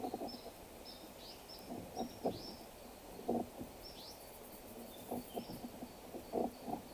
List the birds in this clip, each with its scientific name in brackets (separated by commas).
Waller's Starling (Onychognathus walleri), Cinnamon-chested Bee-eater (Merops oreobates), Baglafecht Weaver (Ploceus baglafecht)